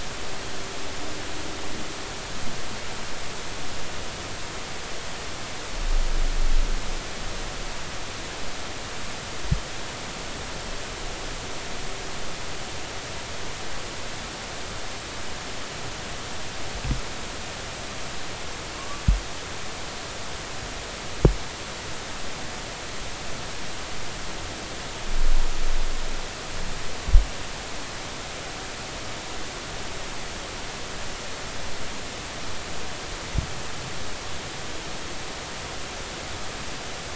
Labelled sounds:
18.8	19.0	humpback whale, 1.0 to 1.2 kHz

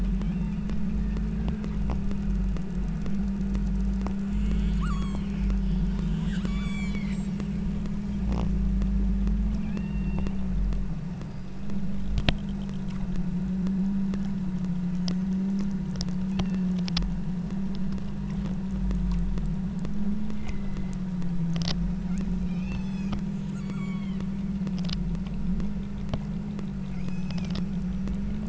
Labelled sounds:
0.2	0.7	killer whale, southern Alaska resident, 2.0 to 3.9 kHz
4.2	5.4	killer whale, southern Alaska resident, 0.96 to 8.0 kHz
6.1	7.3	killer whale, southern Alaska resident, 0.78 to 8.0 kHz
9.7	10.4	killer whale, southern Alaska resident, 0.71 to 5.7 kHz
20.3	21.0	killer whale, southern Alaska resident, 1.9 to 4.2 kHz
22.3	23.3	killer whale, southern Alaska resident, 2.0 to 8.0 kHz
23.5	24.3	killer whale, southern Alaska resident, 0.91 to 8.0 kHz
26.9	27.5	killer whale, southern Alaska resident, 1.9 to 8.0 kHz

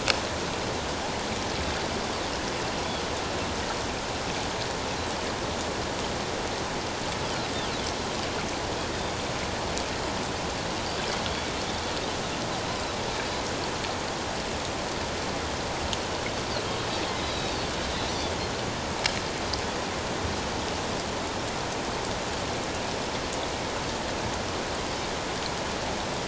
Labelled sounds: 17.2	17.6	Pacific white-sided dolphin, 3.6 to 4.1 kHz

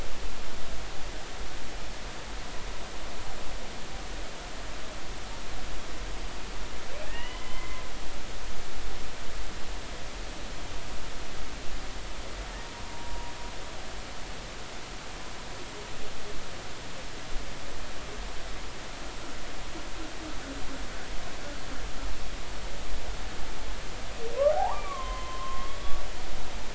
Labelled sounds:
7.0	7.8	humpback whale, 0.93 to 3.1 kHz
12.9	13.3	humpback whale, 0.86 to 0.99 kHz
24.5	25.8	humpback whale, 0.80 to 3.2 kHz

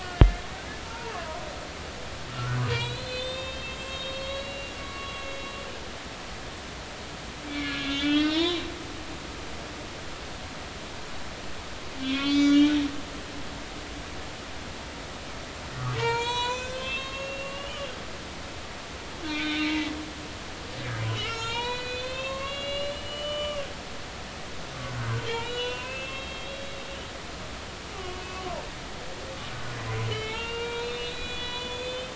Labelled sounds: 0.8	1.4	humpback whale, 0.86 to 1.5 kHz
2.3	5.2	humpback whale, 1.1 to 8.0 kHz
5.9	6.4	humpback whale, 2.7 to 2.8 kHz
7.5	8.6	humpback whale, 0.90 to 5.7 kHz
12.0	12.7	humpback whale, 2.1 to 6.3 kHz
16.0	17.9	humpback whale, 0.86 to 7.8 kHz
19.2	19.9	humpback whale, 1.5 to 3.7 kHz
21.0	23.7	humpback whale, 0.83 to 7.0 kHz
25.0	28.3	humpback whale, 0.96 to 4.0 kHz
28.9	32.1	humpback whale, 0.83 to 4.2 kHz

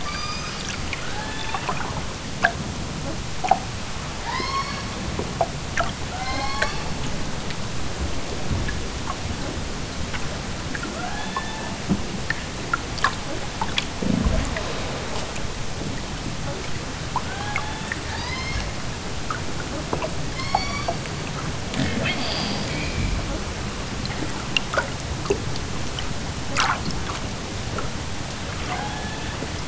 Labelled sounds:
0.0	0.7	killer whale, southern Alaska resident, 0.87 to 8.0 kHz
1.0	1.8	killer whale, southern Alaska resident, 0.50 to 4.3 kHz
4.2	5.0	killer whale, southern Alaska resident, 0.64 to 7.0 kHz
6.1	7.0	killer whale, southern Alaska resident, 0.46 to 7.8 kHz
10.9	11.7	killer whale, southern Alaska resident, 0.55 to 3.9 kHz
17.2	18.7	killer whale, southern Alaska resident, 0.46 to 6.8 kHz
20.3	21.0	killer whale, southern Alaska resident, 0.69 to 7.3 kHz
28.6	29.5	killer whale, southern Alaska resident, 0.50 to 4.8 kHz

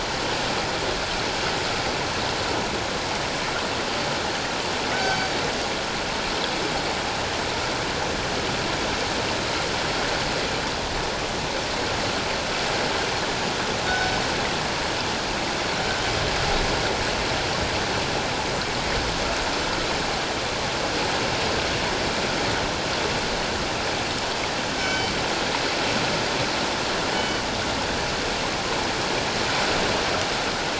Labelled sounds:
4.9	5.3	killer whale, northern resident, G clan, 1.5 to 4.7 kHz
13.9	14.2	killer whale, northern resident, G clan, 1.4 to 5.3 kHz
24.8	25.2	killer whale, northern resident, G clan, 1.5 to 5.4 kHz
27.1	27.4	killer whale, northern resident, G clan, 2.9 to 3.1 kHz

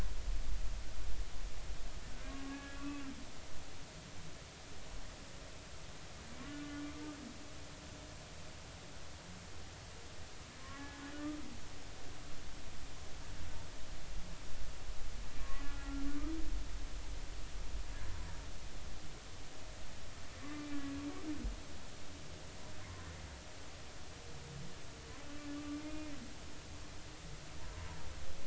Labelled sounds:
2.3	3.0	humpback whale, 1.1 to 1.7 kHz
6.4	6.8	humpback whale, 1.4 to 1.5 kHz
10.7	11.0	humpback whale, 1.6 to 1.8 kHz
15.4	16.3	humpback whale, 1.0 to 1.5 kHz
20.4	20.8	humpback whale, 1.1 to 2.4 kHz
25.5	26.1	humpback whale, 1.1 to 2.5 kHz
27.6	27.9	humpback whale, 0.90 to 1.1 kHz

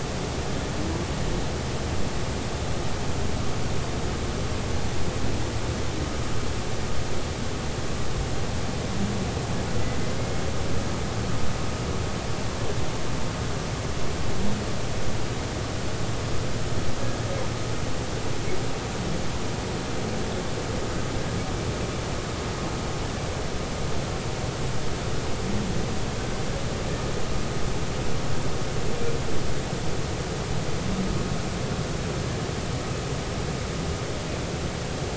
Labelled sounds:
10.2	10.4	humpback whale, 2.1 to 2.2 kHz

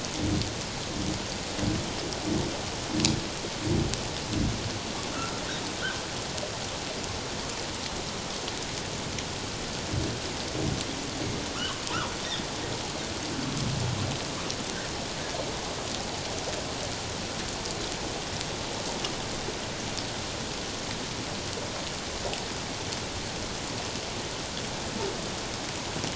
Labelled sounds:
5.1	5.4	humpback whale, 1.2 to 1.5 kHz

